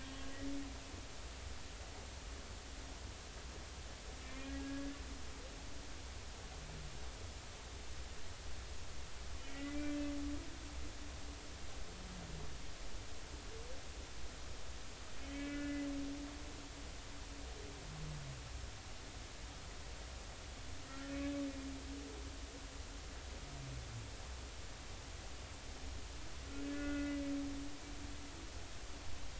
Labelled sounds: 4.2	5.0	humpback whale, 1.6 to 2.5 kHz
9.5	9.9	humpback whale, 1.9 to 2.1 kHz
15.2	15.9	humpback whale, 1.4 to 3.1 kHz
16.4	16.8	humpback whale, 2.8 to 2.9 kHz
21.1	21.4	humpback whale, 2.5 to 2.6 kHz
26.6	27.2	humpback whale, 1.4 to 2.0 kHz

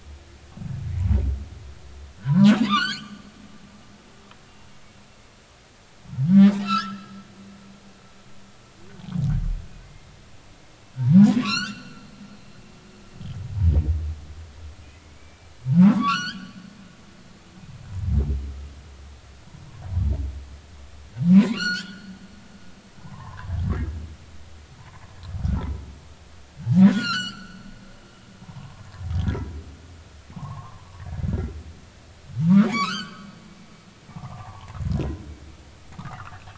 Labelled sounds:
2.2	3.2	humpback whale, 0.93 to 6.4 kHz
6.4	7.2	humpback whale, 1.2 to 3.9 kHz
11.4	12.1	humpback whale, 0.99 to 6.4 kHz
15.2	16.6	humpback whale, 0.80 to 6.1 kHz
21.3	22.1	humpback whale, 0.90 to 7.6 kHz
23.0	23.5	humpback whale, 0.80 to 1.2 kHz
24.8	25.0	humpback whale, 0.86 to 1.1 kHz
25.4	25.8	humpback whale, 0.83 to 1.5 kHz
26.9	27.6	humpback whale, 1.2 to 7.5 kHz
28.4	28.9	humpback whale, 0.80 to 1.2 kHz
30.3	30.9	humpback whale, 0.80 to 1.2 kHz
32.4	33.3	humpback whale, 0.86 to 4.9 kHz
34.1	34.7	humpback whale, 0.80 to 1.2 kHz
36.0	36.4	humpback whale, 0.93 to 1.5 kHz

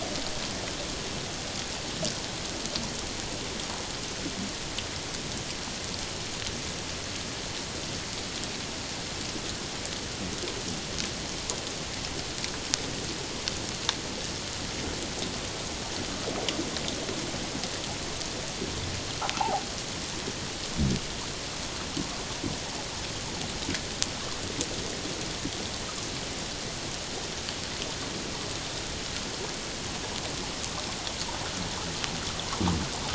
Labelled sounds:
19.4	19.6	fish, 0.78 to 1.1 kHz

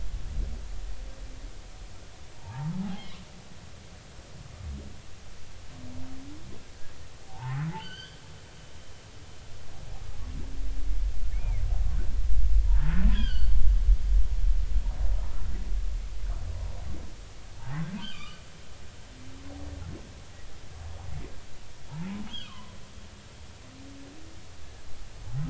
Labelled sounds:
2.4	3.2	humpback whale, 0.80 to 3.3 kHz
7.7	8.6	humpback whale, 0.80 to 6.3 kHz
11.4	11.6	humpback whale, 1.9 to 2.5 kHz
12.7	13.6	humpback whale, 1.3 to 5.0 kHz
17.6	18.4	humpback whale, 0.80 to 3.4 kHz
22.3	22.7	humpback whale, 0.93 to 3.5 kHz

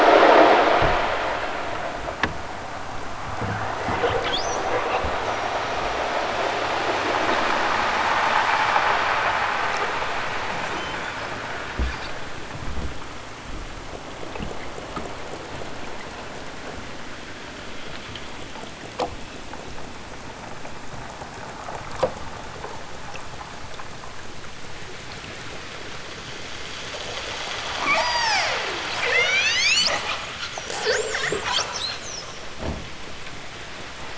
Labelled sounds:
10.7	11.3	killer whale, southern Alaska resident, 2.6 to 8.0 kHz
27.7	28.6	killer whale, southern Alaska resident, 0.18 to 8.0 kHz
29.0	30.0	killer whale, southern Alaska resident, 0.28 to 8.0 kHz

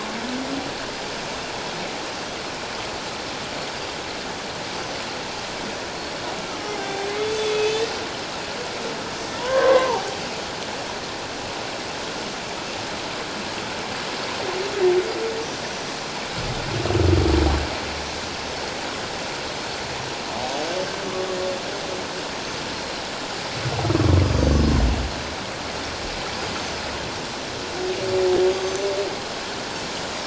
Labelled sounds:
4.7	5.0	Pacific white-sided dolphin, 5.9 to 6.3 kHz
6.4	7.8	humpback whale, 0.78 to 2.7 kHz
9.2	10.2	humpback whale, 0.78 to 1.9 kHz
24.2	24.6	Pacific white-sided dolphin, 4.5 to 6.3 kHz
26.5	26.8	Pacific white-sided dolphin, 5.8 to 6.3 kHz
28.6	28.9	Pacific white-sided dolphin, 5.9 to 6.4 kHz

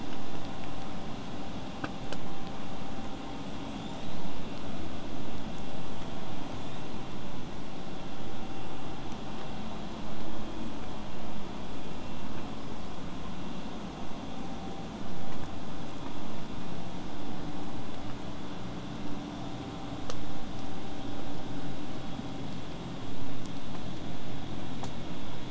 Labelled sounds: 3.7	4.3	killer whale, southern resident, 3.2 to 8.0 kHz
6.5	7.0	killer whale, southern resident, 3.1 to 7.8 kHz
15.0	20.0	vessel noise, 0 to 8.0 kHz

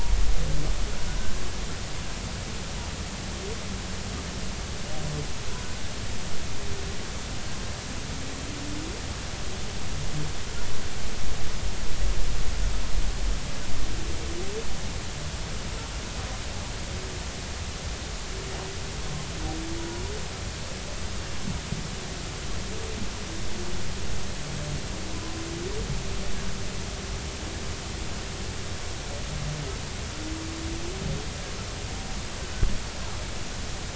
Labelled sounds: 19.8	20.0	humpback whale, 0.90 to 0.99 kHz

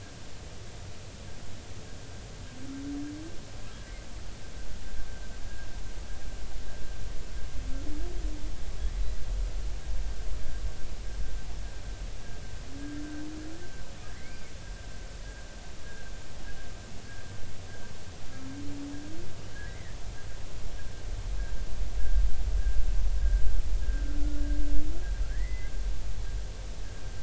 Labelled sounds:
14.2	14.5	humpback whale, 1.9 to 2.4 kHz
18.2	18.5	humpback whale, 1.28 to 1.34 kHz
19.7	20.0	humpback whale, 1.7 to 2.2 kHz
23.2	23.4	humpback whale, 1.5 to 1.7 kHz
25.3	25.7	humpback whale, 1.6 to 2.2 kHz

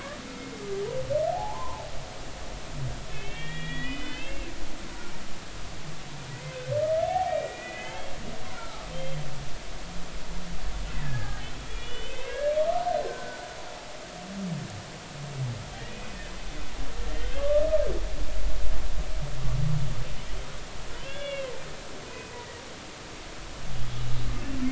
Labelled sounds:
1.3	1.8	humpback whale, 0.80 to 1.1 kHz
3.1	4.5	humpback whale, 1.8 to 3.8 kHz
7.1	9.2	humpback whale, 0.80 to 3.4 kHz
11.0	11.4	humpback whale, 1.2 to 1.8 kHz
11.7	12.5	humpback whale, 1.6 to 3.7 kHz
13.0	13.5	humpback whale, 1.4 to 1.6 kHz
15.9	16.3	humpback whale, 2.4 to 2.6 kHz
17.1	17.7	humpback whale, 1.0 to 3.2 kHz
21.1	21.5	humpback whale, 1.6 to 3.5 kHz
22.1	22.3	humpback whale, 2.4 to 2.6 kHz

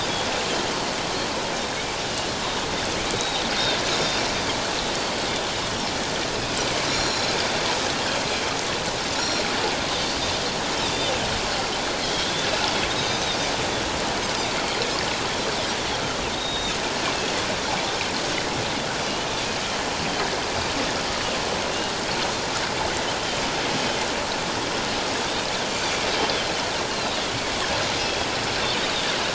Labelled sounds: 1.6	2.3	Pacific white-sided dolphin, 2.8 to 3.8 kHz
3.2	4.2	Pacific white-sided dolphin, 3.6 to 5.6 kHz
6.9	7.3	Pacific white-sided dolphin, 3.9 to 7.1 kHz
9.2	10.2	Pacific white-sided dolphin, 3.5 to 5.8 kHz
10.8	11.1	Pacific white-sided dolphin, 3.4 to 3.9 kHz
12.0	13.3	Pacific white-sided dolphin, 3.1 to 6.3 kHz
16.3	16.8	Pacific white-sided dolphin, 3.5 to 3.9 kHz
26.9	27.2	Pacific white-sided dolphin, 3.6 to 4.3 kHz

